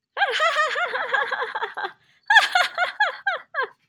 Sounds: Laughter